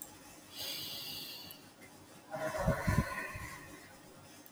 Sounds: Sigh